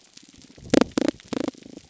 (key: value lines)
label: biophony
recorder: SoundTrap 300